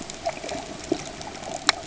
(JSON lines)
{"label": "ambient", "recorder": "HydroMoth"}